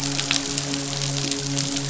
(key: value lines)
label: biophony, midshipman
recorder: SoundTrap 500